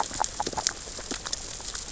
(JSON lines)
{"label": "biophony, grazing", "recorder": "SoundTrap 600 or HydroMoth"}